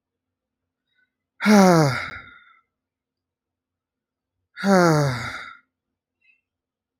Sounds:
Sigh